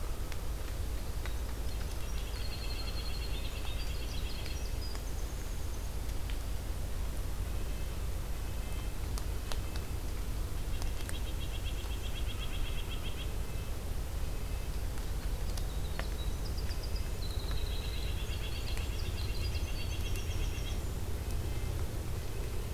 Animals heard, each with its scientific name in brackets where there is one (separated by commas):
Winter Wren (Troglodytes hiemalis), White-breasted Nuthatch (Sitta carolinensis), Red-breasted Nuthatch (Sitta canadensis)